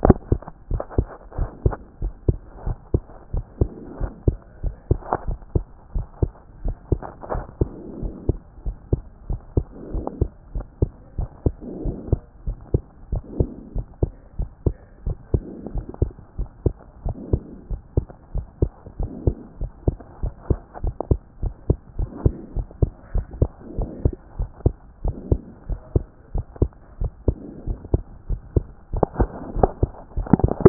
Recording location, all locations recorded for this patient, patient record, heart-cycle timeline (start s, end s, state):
pulmonary valve (PV)
aortic valve (AV)+pulmonary valve (PV)+mitral valve (MV)+other location+other location
#Age: Child
#Sex: Male
#Height: 129.0 cm
#Weight: 24.8 kg
#Pregnancy status: False
#Murmur: Absent
#Murmur locations: nan
#Most audible location: nan
#Systolic murmur timing: nan
#Systolic murmur shape: nan
#Systolic murmur grading: nan
#Systolic murmur pitch: nan
#Systolic murmur quality: nan
#Diastolic murmur timing: nan
#Diastolic murmur shape: nan
#Diastolic murmur grading: nan
#Diastolic murmur pitch: nan
#Diastolic murmur quality: nan
#Outcome: Abnormal
#Campaign: 2014 screening campaign
0.00	0.70	unannotated
0.70	0.82	S1
0.82	0.96	systole
0.96	1.08	S2
1.08	1.38	diastole
1.38	1.50	S1
1.50	1.64	systole
1.64	1.76	S2
1.76	2.02	diastole
2.02	2.12	S1
2.12	2.26	systole
2.26	2.38	S2
2.38	2.66	diastole
2.66	2.76	S1
2.76	2.92	systole
2.92	3.02	S2
3.02	3.34	diastole
3.34	3.44	S1
3.44	3.60	systole
3.60	3.70	S2
3.70	4.00	diastole
4.00	4.12	S1
4.12	4.26	systole
4.26	4.38	S2
4.38	4.64	diastole
4.64	4.74	S1
4.74	4.90	systole
4.90	5.00	S2
5.00	5.26	diastole
5.26	5.38	S1
5.38	5.54	systole
5.54	5.64	S2
5.64	5.94	diastole
5.94	6.06	S1
6.06	6.20	systole
6.20	6.30	S2
6.30	6.64	diastole
6.64	6.76	S1
6.76	6.90	systole
6.90	7.00	S2
7.00	7.32	diastole
7.32	7.44	S1
7.44	7.60	systole
7.60	7.70	S2
7.70	8.00	diastole
8.00	8.12	S1
8.12	8.28	systole
8.28	8.38	S2
8.38	8.66	diastole
8.66	8.76	S1
8.76	8.92	systole
8.92	9.02	S2
9.02	9.28	diastole
9.28	9.40	S1
9.40	9.56	systole
9.56	9.66	S2
9.66	9.92	diastole
9.92	10.06	S1
10.06	10.20	systole
10.20	10.30	S2
10.30	10.54	diastole
10.54	10.66	S1
10.66	10.80	systole
10.80	10.90	S2
10.90	11.18	diastole
11.18	11.28	S1
11.28	11.44	systole
11.44	11.54	S2
11.54	11.84	diastole
11.84	11.96	S1
11.96	12.10	systole
12.10	12.20	S2
12.20	12.46	diastole
12.46	12.58	S1
12.58	12.72	systole
12.72	12.82	S2
12.82	13.12	diastole
13.12	13.22	S1
13.22	13.38	systole
13.38	13.48	S2
13.48	13.74	diastole
13.74	13.86	S1
13.86	14.02	systole
14.02	14.12	S2
14.12	14.38	diastole
14.38	14.50	S1
14.50	14.64	systole
14.64	14.74	S2
14.74	15.06	diastole
15.06	15.16	S1
15.16	15.32	systole
15.32	15.42	S2
15.42	15.74	diastole
15.74	15.86	S1
15.86	16.00	systole
16.00	16.12	S2
16.12	16.38	diastole
16.38	16.48	S1
16.48	16.64	systole
16.64	16.74	S2
16.74	17.04	diastole
17.04	17.16	S1
17.16	17.32	systole
17.32	17.42	S2
17.42	17.70	diastole
17.70	17.80	S1
17.80	17.96	systole
17.96	18.06	S2
18.06	18.34	diastole
18.34	18.46	S1
18.46	18.60	systole
18.60	18.70	S2
18.70	19.00	diastole
19.00	19.10	S1
19.10	19.26	systole
19.26	19.36	S2
19.36	19.60	diastole
19.60	19.70	S1
19.70	19.86	systole
19.86	19.96	S2
19.96	20.22	diastole
20.22	20.34	S1
20.34	20.48	systole
20.48	20.58	S2
20.58	20.84	diastole
20.84	20.94	S1
20.94	21.10	systole
21.10	21.20	S2
21.20	21.42	diastole
21.42	21.54	S1
21.54	21.68	systole
21.68	21.78	S2
21.78	21.98	diastole
21.98	22.10	S1
22.10	22.24	systole
22.24	22.34	S2
22.34	22.56	diastole
22.56	22.66	S1
22.66	22.80	systole
22.80	22.90	S2
22.90	23.14	diastole
23.14	23.26	S1
23.26	23.40	systole
23.40	23.50	S2
23.50	23.78	diastole
23.78	23.90	S1
23.90	24.04	systole
24.04	24.14	S2
24.14	24.38	diastole
24.38	24.50	S1
24.50	24.64	systole
24.64	24.74	S2
24.74	25.04	diastole
25.04	25.16	S1
25.16	25.30	systole
25.30	25.40	S2
25.40	25.68	diastole
25.68	25.80	S1
25.80	25.94	systole
25.94	26.04	S2
26.04	26.34	diastole
26.34	26.44	S1
26.44	26.60	systole
26.60	26.70	S2
26.70	27.00	diastole
27.00	27.12	S1
27.12	27.26	systole
27.26	27.36	S2
27.36	27.66	diastole
27.66	27.78	S1
27.78	27.92	systole
27.92	28.02	S2
28.02	28.28	diastole
28.28	28.40	S1
28.40	28.54	systole
28.54	28.64	S2
28.64	28.94	diastole
28.94	29.06	S1
29.06	29.18	systole
29.18	29.28	S2
29.28	29.56	diastole
29.56	30.69	unannotated